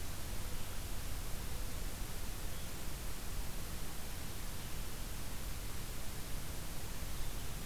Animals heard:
forest ambience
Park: Acadia National Park